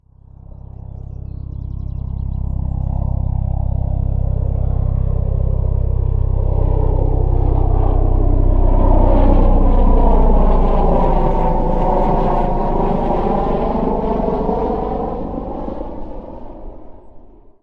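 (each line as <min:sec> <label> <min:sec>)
0:00.0 An Airbus flies loudly, gradually increasing in volume as it approaches. 0:09.9
0:09.8 An Airbus flies loudly and gradually decreases in volume as it moves away. 0:17.6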